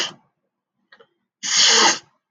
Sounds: Sniff